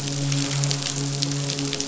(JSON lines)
{"label": "biophony, midshipman", "recorder": "SoundTrap 500"}